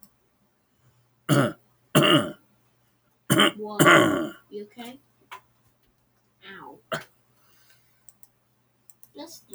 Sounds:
Cough